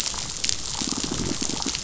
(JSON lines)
{"label": "biophony", "recorder": "SoundTrap 500"}